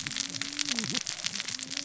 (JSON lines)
{"label": "biophony, cascading saw", "recorder": "SoundTrap 600 or HydroMoth"}